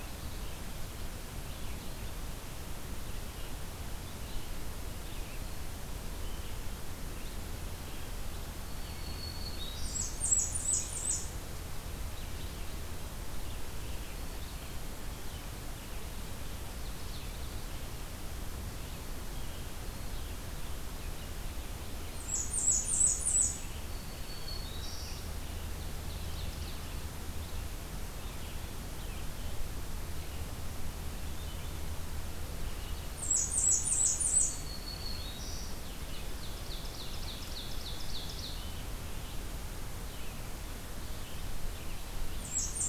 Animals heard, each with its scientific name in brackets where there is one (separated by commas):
Black-throated Green Warbler (Setophaga virens), Blackburnian Warbler (Setophaga fusca), Ovenbird (Seiurus aurocapilla), Red-eyed Vireo (Vireo olivaceus)